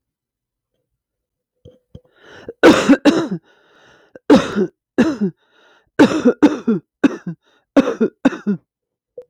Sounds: Cough